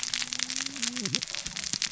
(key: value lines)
label: biophony, cascading saw
recorder: SoundTrap 600 or HydroMoth